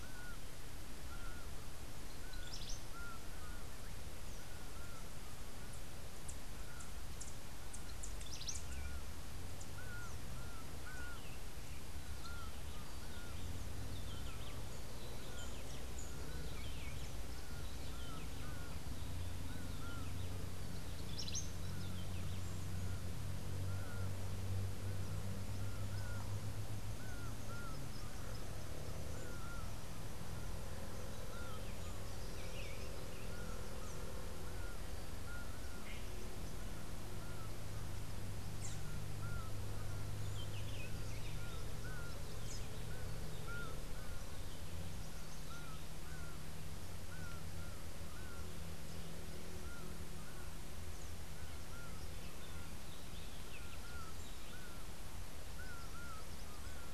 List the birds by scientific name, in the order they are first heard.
Herpetotheres cachinnans, Cantorchilus modestus, Thraupis episcopus